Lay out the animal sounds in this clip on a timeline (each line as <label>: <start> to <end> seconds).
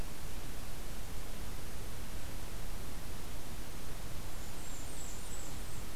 Blackburnian Warbler (Setophaga fusca): 4.1 to 6.0 seconds